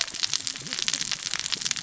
{"label": "biophony, cascading saw", "recorder": "SoundTrap 600 or HydroMoth"}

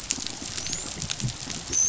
{"label": "biophony, dolphin", "recorder": "SoundTrap 500"}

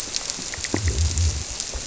{"label": "biophony", "recorder": "SoundTrap 300"}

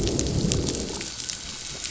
{"label": "biophony, growl", "recorder": "SoundTrap 500"}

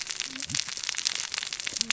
{"label": "biophony, cascading saw", "recorder": "SoundTrap 600 or HydroMoth"}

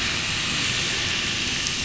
{"label": "anthrophony, boat engine", "recorder": "SoundTrap 500"}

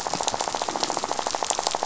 {"label": "biophony, rattle", "recorder": "SoundTrap 500"}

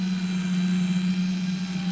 {"label": "anthrophony, boat engine", "recorder": "SoundTrap 500"}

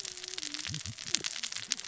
{"label": "biophony, cascading saw", "recorder": "SoundTrap 600 or HydroMoth"}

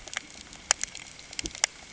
{"label": "ambient", "recorder": "HydroMoth"}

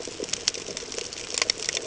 {"label": "ambient", "recorder": "HydroMoth"}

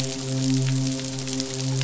{"label": "biophony, midshipman", "recorder": "SoundTrap 500"}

